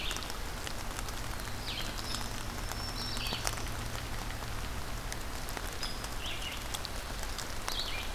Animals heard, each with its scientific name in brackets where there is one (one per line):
Red-eyed Vireo (Vireo olivaceus)
Black-throated Green Warbler (Setophaga virens)